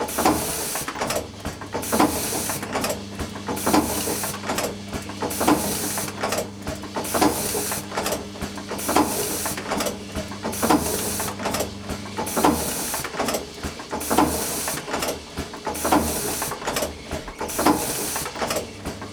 Is the copy machine working?
yes